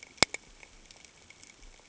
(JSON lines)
{"label": "ambient", "recorder": "HydroMoth"}